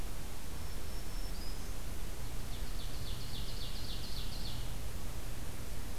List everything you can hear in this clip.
Black-throated Green Warbler, Ovenbird